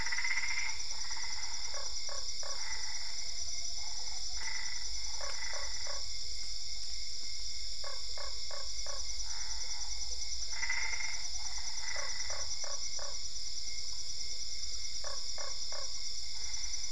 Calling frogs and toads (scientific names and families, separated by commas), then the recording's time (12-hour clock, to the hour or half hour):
Boana albopunctata (Hylidae), Boana lundii (Hylidae)
~9pm